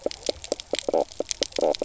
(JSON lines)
{"label": "biophony, knock croak", "recorder": "SoundTrap 300"}